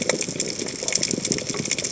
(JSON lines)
{"label": "biophony, chatter", "recorder": "HydroMoth"}